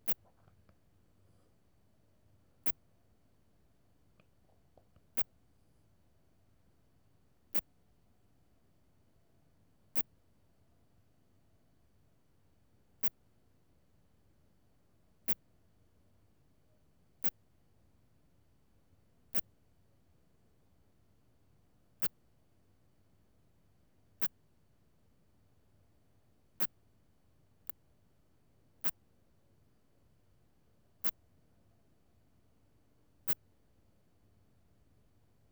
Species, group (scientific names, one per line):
Phaneroptera falcata
Orthoptera